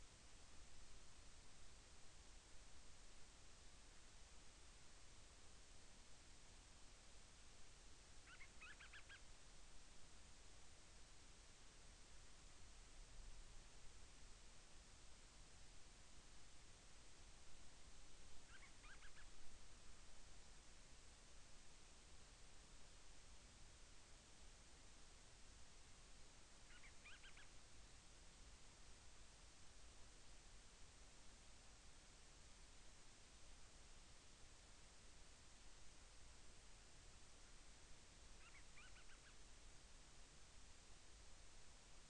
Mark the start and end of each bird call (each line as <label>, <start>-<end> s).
Band-rumped Storm-Petrel (Hydrobates castro), 8.1-9.3 s
Band-rumped Storm-Petrel (Hydrobates castro), 18.4-19.3 s
Band-rumped Storm-Petrel (Hydrobates castro), 26.5-27.6 s
Band-rumped Storm-Petrel (Hydrobates castro), 38.3-39.4 s